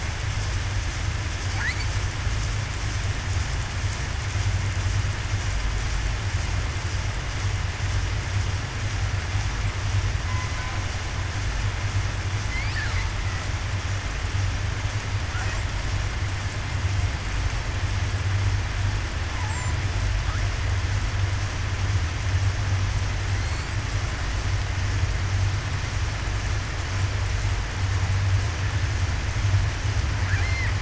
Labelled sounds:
30.4	30.7	killer whale, southern resident, 7.8 to 8.0 kHz

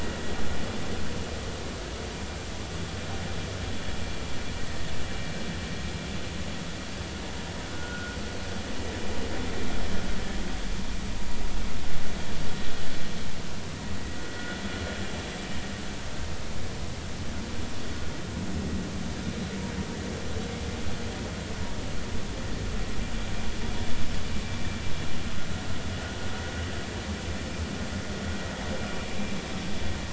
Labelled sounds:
8.7	9.2	vessel noise, 1.3 to 1.6 kHz

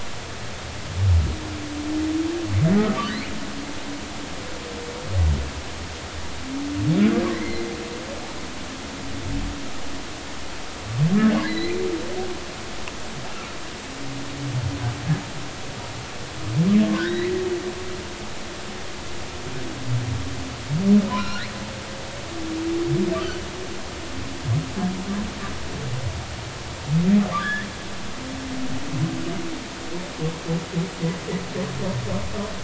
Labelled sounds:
7.3	7.7	humpback whale, 1.8 to 4.3 kHz
11.4	11.8	humpback whale, 1.9 to 4.2 kHz
16.9	17.3	humpback whale, 1.4 to 2.2 kHz
21.1	21.5	humpback whale, 0.93 to 5.7 kHz
27.4	27.7	humpback whale, 1.4 to 3.5 kHz

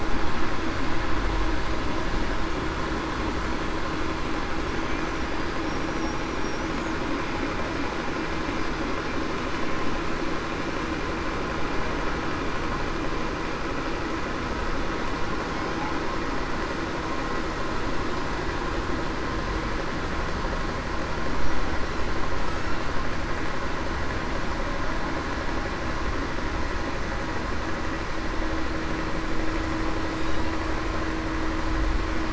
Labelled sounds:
5.6	6.2	killer whale, Bigg's (transient), 5.5 to 5.8 kHz

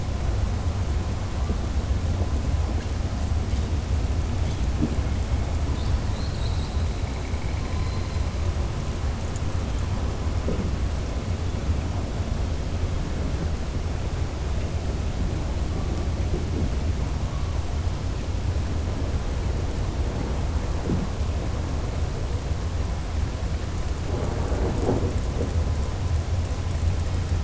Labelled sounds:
6.0	6.8	killer whale, southern resident, 3.7 to 5.0 kHz

